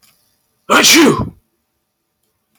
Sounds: Sneeze